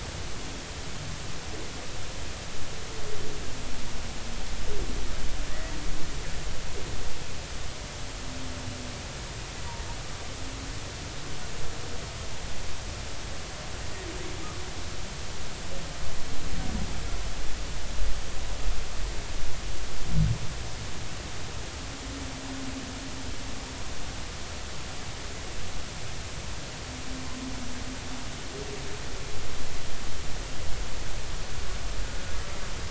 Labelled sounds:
5.5	5.7	humpback whale, 1.8 to 2.0 kHz

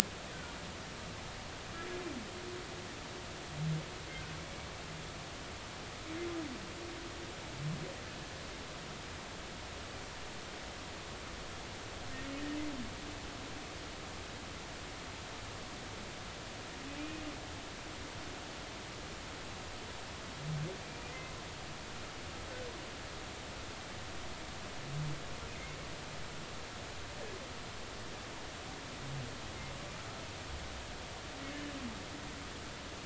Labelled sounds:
17.0	17.2	humpback whale, 2.3 to 2.6 kHz
21.1	21.3	humpback whale, 2.0 to 2.1 kHz

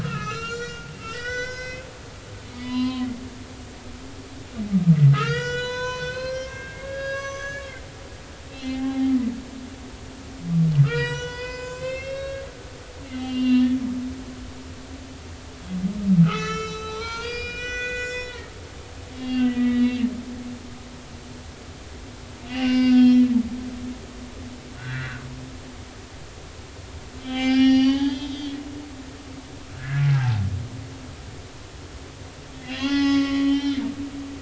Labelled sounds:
0.0	3.1	humpback whale, 0.93 to 7.3 kHz
5.1	7.8	humpback whale, 0.93 to 7.0 kHz
8.5	9.1	humpback whale, 0.80 to 3.5 kHz
10.8	12.8	humpback whale, 0.90 to 7.9 kHz
13.1	13.8	humpback whale, 1.7 to 4.7 kHz
16.2	18.3	humpback whale, 0.80 to 7.1 kHz
19.1	20.1	humpback whale, 2.6 to 4.6 kHz
20.5	20.8	humpback whale, 1.9 to 2.0 kHz
22.4	23.3	humpback whale, 0.99 to 5.6 kHz
24.8	25.2	humpback whale, 1.4 to 2.0 kHz
27.2	28.6	humpback whale, 0.80 to 5.9 kHz
29.7	30.4	humpback whale, 0.80 to 1.8 kHz
32.5	33.8	humpback whale, 0.80 to 5.8 kHz

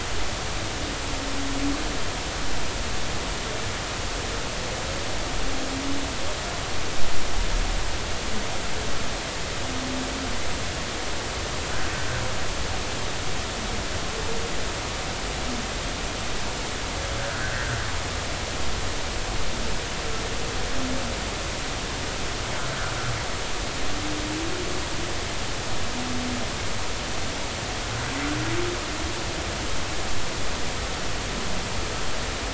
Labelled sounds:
17.2	17.8	humpback whale, 1.4 to 1.7 kHz

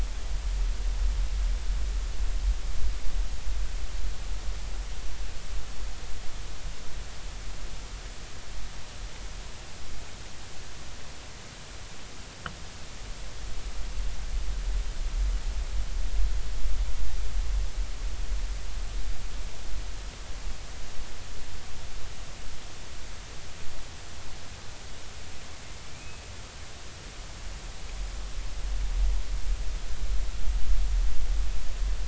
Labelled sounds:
25.9	26.2	killer whale, 2.3 to 2.6 kHz

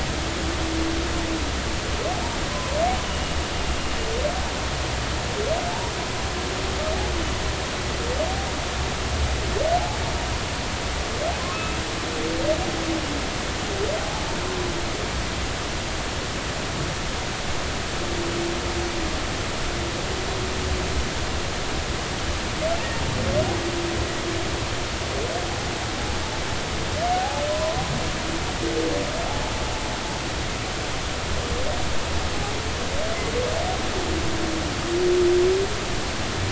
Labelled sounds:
11.5	11.8	humpback whale, 1.2 to 2.7 kHz
14.0	14.3	humpback whale, 0.80 to 0.93 kHz
27.1	27.8	humpback whale, 0.80 to 1.1 kHz
29.3	29.5	humpback whale, 0.80 to 0.90 kHz

